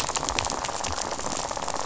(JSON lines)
{"label": "biophony, rattle", "recorder": "SoundTrap 500"}